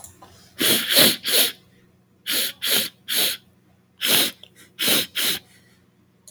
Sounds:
Sniff